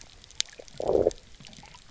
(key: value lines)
label: biophony, low growl
recorder: SoundTrap 300